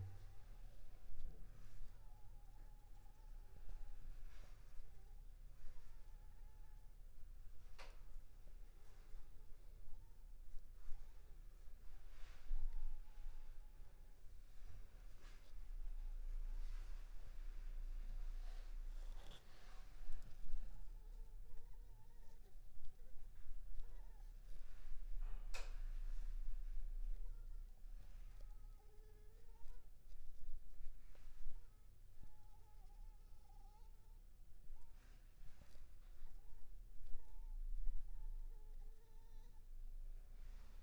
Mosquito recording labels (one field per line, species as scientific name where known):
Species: Anopheles funestus s.s.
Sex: female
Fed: unfed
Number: one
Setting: cup